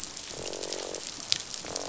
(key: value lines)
label: biophony, croak
recorder: SoundTrap 500